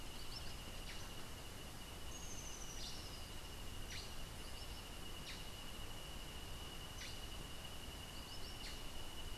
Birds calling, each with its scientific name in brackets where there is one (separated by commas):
Rufous-tailed Hummingbird (Amazilia tzacatl), Black-headed Saltator (Saltator atriceps)